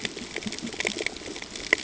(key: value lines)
label: ambient
recorder: HydroMoth